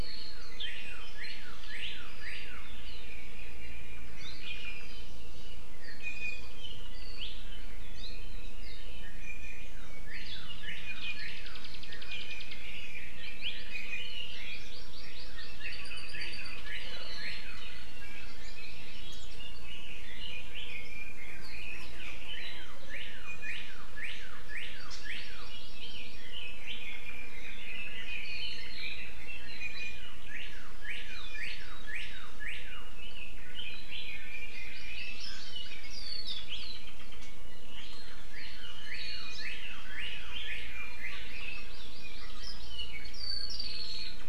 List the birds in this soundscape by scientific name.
Cardinalis cardinalis, Himatione sanguinea, Leiothrix lutea, Chlorodrepanis virens